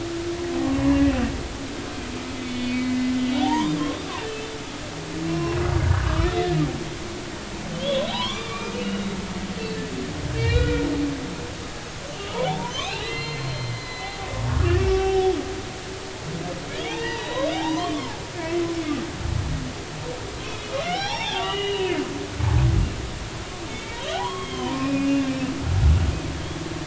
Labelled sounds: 1.0	1.2	humpback whale, 2.5 to 2.6 kHz
2.4	4.5	humpback whale, 0.80 to 4.9 kHz
5.3	6.4	humpback whale, 0.96 to 5.6 kHz
7.7	9.9	humpback whale, 0.80 to 4.5 kHz
10.3	10.8	humpback whale, 1.4 to 4.0 kHz
12.5	14.4	humpback whale, 0.80 to 4.3 kHz
14.6	15.3	humpback whale, 0.80 to 5.9 kHz
16.7	18.6	humpback whale, 0.80 to 3.9 kHz
20.4	22.0	humpback whale, 0.80 to 5.9 kHz
23.7	25.3	humpback whale, 0.80 to 4.0 kHz

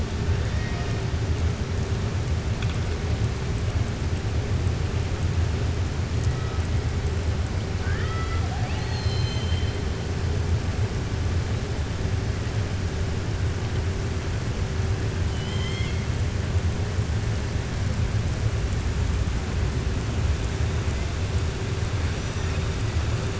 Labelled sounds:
0.4	1.0	killer whale, southern resident, 0.71 to 5.7 kHz
7.7	9.8	killer whale, southern resident, 0.75 to 7.8 kHz
15.2	16.0	killer whale, southern resident, 1.1 to 6.9 kHz

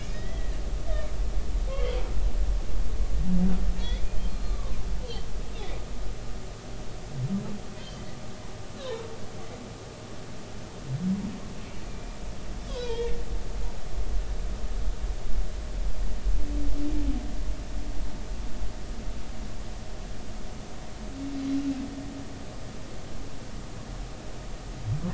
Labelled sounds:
0.1	0.5	humpback whale, 1.8 to 3.9 kHz
1.7	2.0	humpback whale, 2.0 to 3.5 kHz
3.8	4.9	humpback whale, 0.96 to 4.3 kHz
7.8	8.0	humpback whale, 3.0 to 3.2 kHz
8.8	9.0	humpback whale, 3.6 to 4.1 kHz
11.9	12.2	humpback whale, 2.3 to 2.5 kHz
12.7	13.2	humpback whale, 0.86 to 3.5 kHz

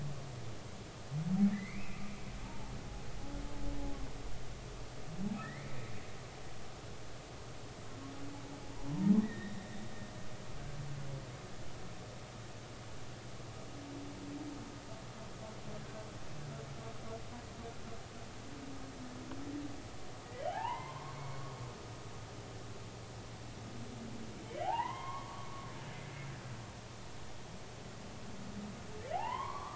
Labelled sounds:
1.5	2.7	humpback whale, 0.80 to 2.7 kHz
5.4	5.8	humpback whale, 1.7 to 2.5 kHz
9.2	9.5	humpback whale, 1.8 to 2.0 kHz
20.2	21.1	humpback whale, 0.80 to 3.2 kHz
24.6	25.7	humpback whale, 0.80 to 3.3 kHz
29.1	29.7	humpback whale, 0.80 to 3.3 kHz

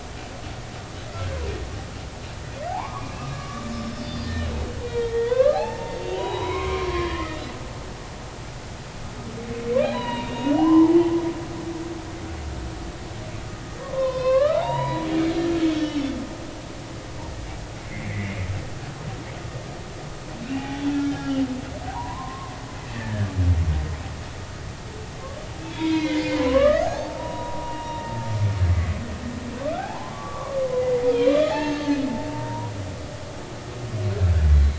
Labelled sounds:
2.7	3.7	humpback whale, 0.80 to 1.3 kHz
4.0	7.6	humpback whale, 0.80 to 4.9 kHz
9.8	10.9	humpback whale, 0.83 to 4.2 kHz
13.8	15.1	humpback whale, 0.80 to 5.3 kHz
15.7	16.1	humpback whale, 3.2 to 5.7 kHz
17.8	18.4	humpback whale, 1.9 to 2.4 kHz
20.5	22.5	humpback whale, 0.80 to 3.7 kHz
22.9	23.3	humpback whale, 1.5 to 2.0 kHz
25.7	28.3	humpback whale, 0.80 to 4.6 kHz
28.7	29.0	humpback whale, 1.9 to 2.2 kHz
29.6	30.6	humpback whale, 0.80 to 1.7 kHz
31.1	31.8	humpback whale, 0.80 to 3.5 kHz
32.3	32.7	humpback whale, 0.86 to 1.1 kHz

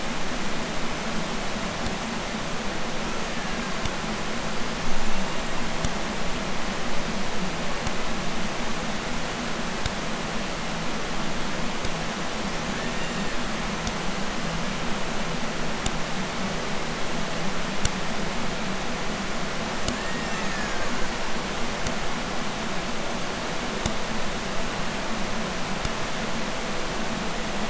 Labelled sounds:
2.9	4.1	killer whale, Bigg's (transient), 0.49 to 7.2 kHz
4.5	5.7	killer whale, Bigg's (transient), 0.74 to 7.8 kHz
12.3	13.5	killer whale, Bigg's (transient), 0.90 to 7.5 kHz
19.7	21.2	killer whale, Bigg's (transient), 0.87 to 7.5 kHz

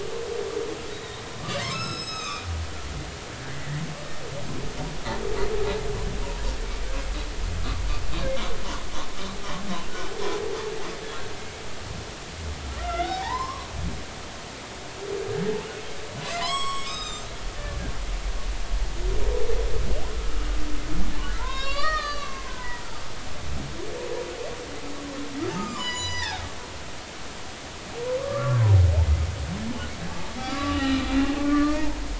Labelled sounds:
0.9	2.5	humpback whale, 1.1 to 8.0 kHz
11.4	11.6	humpback whale, 2.1 to 2.3 kHz
12.8	13.7	humpback whale, 0.80 to 5.4 kHz
16.2	17.3	humpback whale, 0.96 to 8.0 kHz
20.1	20.5	humpback whale, 1.2 to 1.4 kHz
21.4	22.8	humpback whale, 0.86 to 7.4 kHz
25.6	26.4	humpback whale, 0.80 to 8.0 kHz
28.2	28.7	humpback whale, 0.90 to 1.2 kHz
30.5	31.1	humpback whale, 1.1 to 4.2 kHz
31.4	32.0	humpback whale, 0.86 to 1.9 kHz

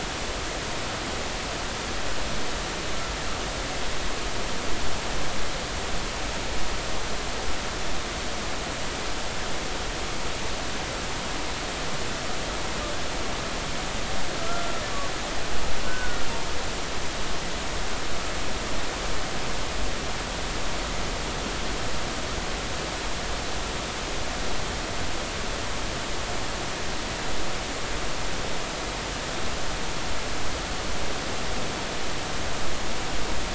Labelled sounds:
14.5	14.7	humpback whale, 1.3 to 1.4 kHz
15.8	16.3	humpback whale, 1.4 to 1.7 kHz

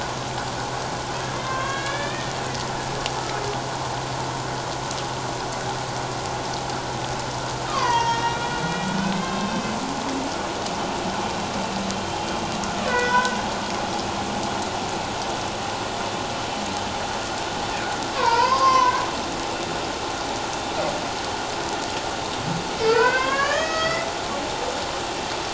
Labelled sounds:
1.4	3.5	humpback whale, 1.0 to 3.7 kHz
7.7	8.4	humpback whale, 0.88 to 6.2 kHz
9.0	9.7	humpback whale, 1.5 to 3.8 kHz
12.8	13.4	humpback whale, 1.4 to 3.6 kHz
18.1	19.0	humpback whale, 0.88 to 5.8 kHz
22.9	24.1	humpback whale, 0.97 to 6.6 kHz

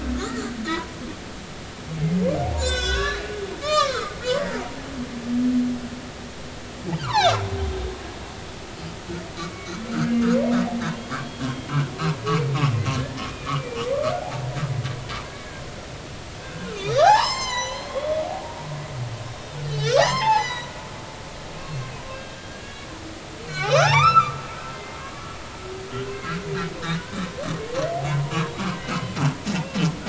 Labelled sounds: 0.2	1.0	humpback whale, 0.86 to 1.4 kHz
2.6	4.2	humpback whale, 0.99 to 7.8 kHz
4.7	4.9	humpback whale, 0.80 to 0.99 kHz
7.0	7.4	humpback whale, 0.80 to 6.5 kHz
9.4	10.3	humpback whale, 1.1 to 2.4 kHz
10.9	11.4	humpback whale, 0.93 to 4.4 kHz
13.0	13.8	humpback whale, 1.7 to 2.5 kHz
15.3	15.6	humpback whale, 1.5 to 1.7 kHz
16.4	18.3	humpback whale, 0.80 to 8.0 kHz
19.2	20.7	humpback whale, 0.80 to 7.1 kHz
21.6	22.9	humpback whale, 1.6 to 3.4 kHz
23.4	24.4	humpback whale, 0.80 to 6.4 kHz
24.7	25.1	humpback whale, 2.0 to 2.2 kHz
26.1	26.4	humpback whale, 1.5 to 1.7 kHz
27.6	27.9	humpback whale, 4.2 to 4.5 kHz
28.6	28.9	humpback whale, 1.4 to 1.6 kHz

